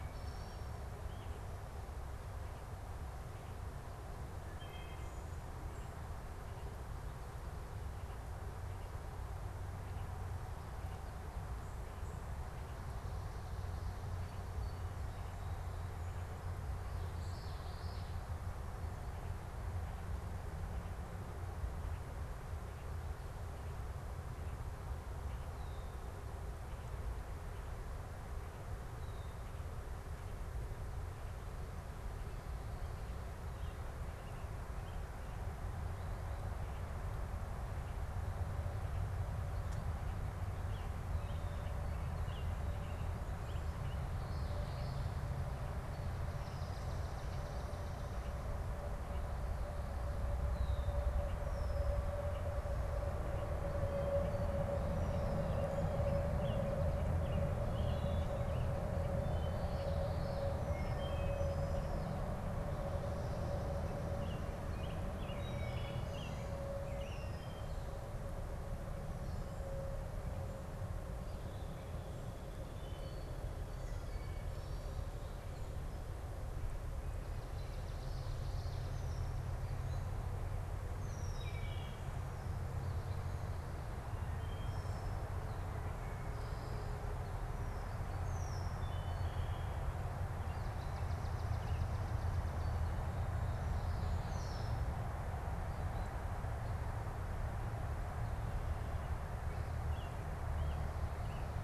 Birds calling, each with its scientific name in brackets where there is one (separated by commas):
unidentified bird, Swamp Sparrow (Melospiza georgiana), American Robin (Turdus migratorius), Common Yellowthroat (Geothlypis trichas), Wood Thrush (Hylocichla mustelina), Red-winged Blackbird (Agelaius phoeniceus)